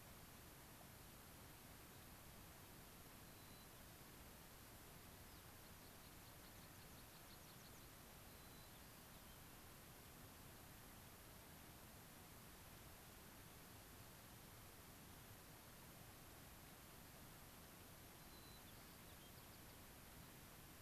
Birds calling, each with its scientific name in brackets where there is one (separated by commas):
White-crowned Sparrow (Zonotrichia leucophrys), American Pipit (Anthus rubescens)